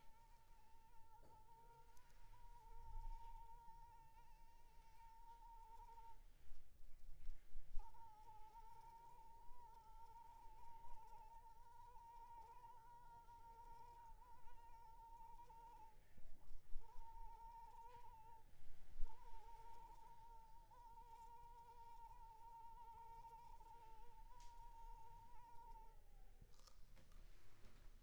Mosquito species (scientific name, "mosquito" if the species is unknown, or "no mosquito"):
Anopheles arabiensis